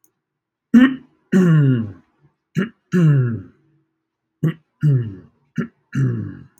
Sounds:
Throat clearing